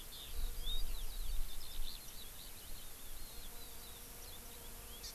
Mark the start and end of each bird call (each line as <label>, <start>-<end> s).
Eurasian Skylark (Alauda arvensis), 0.0-5.0 s
Hawaii Amakihi (Chlorodrepanis virens), 5.0-5.1 s